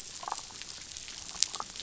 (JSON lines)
{"label": "biophony, damselfish", "recorder": "SoundTrap 500"}